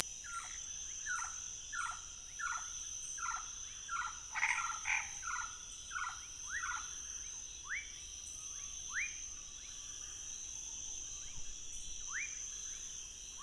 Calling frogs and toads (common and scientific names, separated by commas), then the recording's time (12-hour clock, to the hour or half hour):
Chaco tree frog (Boana raniceps), rufous frog (Leptodactylus fuscus)
1am